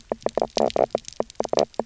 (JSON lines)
{"label": "biophony, knock croak", "recorder": "SoundTrap 300"}